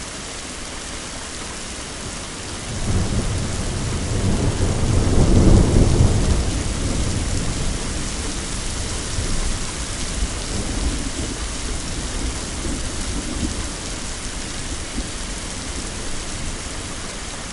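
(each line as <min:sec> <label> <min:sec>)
0:00.0 Heavy rain pouring. 0:17.5
0:03.1 Thunder rolling in the distance. 0:07.7
0:10.0 Thunder rolling in the distance. 0:12.1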